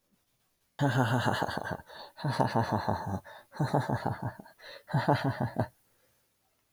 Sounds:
Laughter